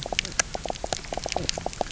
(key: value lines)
label: biophony, knock croak
recorder: SoundTrap 300